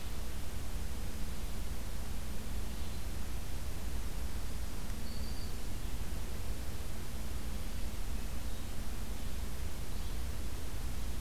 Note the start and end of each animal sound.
4.4s-5.7s: Black-throated Green Warbler (Setophaga virens)
7.9s-8.9s: Hermit Thrush (Catharus guttatus)

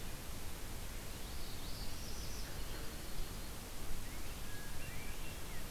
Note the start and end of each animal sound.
1.2s-2.4s: Northern Parula (Setophaga americana)
2.3s-3.6s: Yellow-rumped Warbler (Setophaga coronata)
3.9s-5.7s: Northern Cardinal (Cardinalis cardinalis)
4.3s-5.4s: Hermit Thrush (Catharus guttatus)

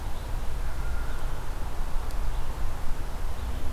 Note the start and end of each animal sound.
0.0s-3.7s: Red-eyed Vireo (Vireo olivaceus)

